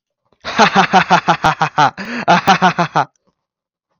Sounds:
Laughter